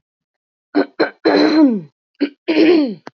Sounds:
Throat clearing